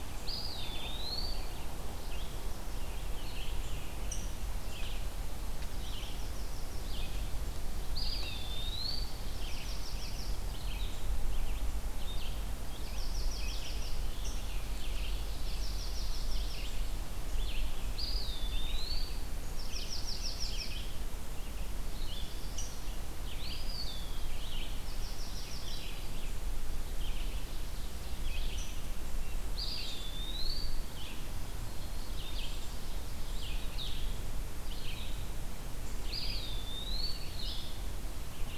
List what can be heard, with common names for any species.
Red-eyed Vireo, Eastern Wood-Pewee, Rose-breasted Grosbeak, Chipping Sparrow